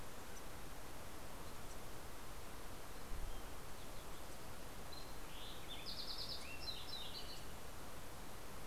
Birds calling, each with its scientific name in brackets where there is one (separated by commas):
Lincoln's Sparrow (Melospiza lincolnii)